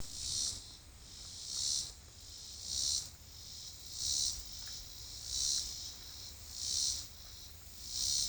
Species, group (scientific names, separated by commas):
Neotibicen robinsonianus, Cicadidae